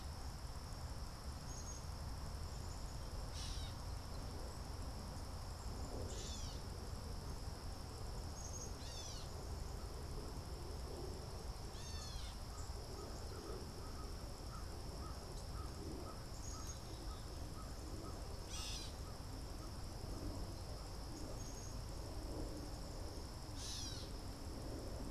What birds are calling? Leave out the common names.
Poecile atricapillus, Dumetella carolinensis, Corvus brachyrhynchos